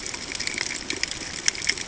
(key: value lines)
label: ambient
recorder: HydroMoth